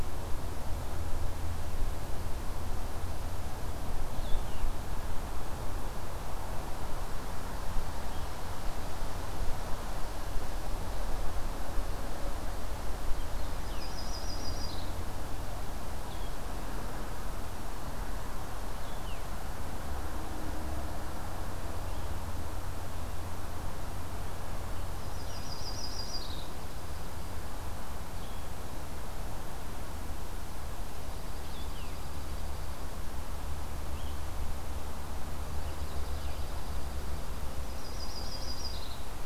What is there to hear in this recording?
Blue-headed Vireo, Yellow-rumped Warbler, Dark-eyed Junco